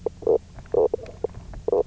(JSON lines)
{"label": "biophony, knock croak", "recorder": "SoundTrap 300"}